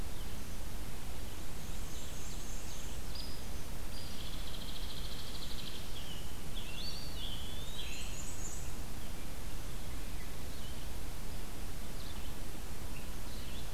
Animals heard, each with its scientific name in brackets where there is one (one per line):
Scarlet Tanager (Piranga olivacea)
Ovenbird (Seiurus aurocapilla)
Hairy Woodpecker (Dryobates villosus)
Eastern Wood-Pewee (Contopus virens)
Red-eyed Vireo (Vireo olivaceus)
Black-and-white Warbler (Mniotilta varia)